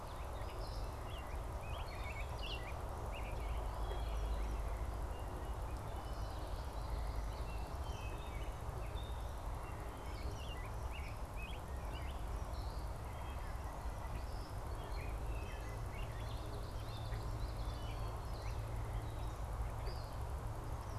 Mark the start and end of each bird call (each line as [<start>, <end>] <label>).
[0.90, 12.50] American Robin (Turdus migratorius)
[3.70, 4.30] Wood Thrush (Hylocichla mustelina)
[6.10, 7.40] Common Yellowthroat (Geothlypis trichas)
[7.80, 8.60] Wood Thrush (Hylocichla mustelina)
[14.60, 16.50] American Robin (Turdus migratorius)
[16.70, 18.00] Common Yellowthroat (Geothlypis trichas)